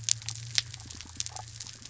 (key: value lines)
label: anthrophony, boat engine
recorder: SoundTrap 300

label: biophony
recorder: SoundTrap 300